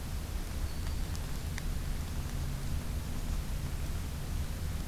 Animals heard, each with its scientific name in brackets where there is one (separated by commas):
Black-throated Green Warbler (Setophaga virens)